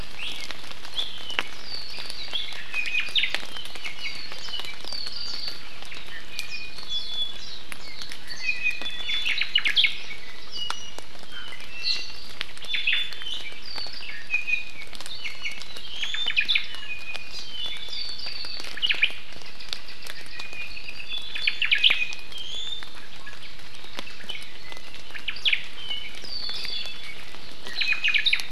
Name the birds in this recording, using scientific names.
Drepanis coccinea, Himatione sanguinea, Myadestes obscurus, Chlorodrepanis virens